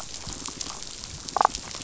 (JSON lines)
{"label": "biophony, damselfish", "recorder": "SoundTrap 500"}